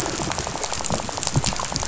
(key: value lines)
label: biophony, rattle
recorder: SoundTrap 500